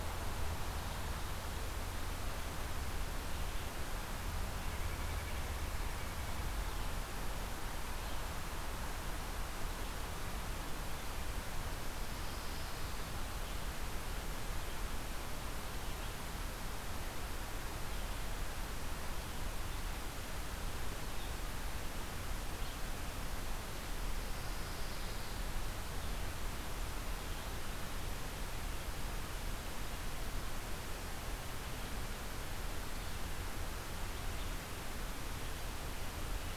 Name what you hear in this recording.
Pine Warbler